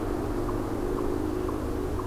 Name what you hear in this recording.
Eastern Chipmunk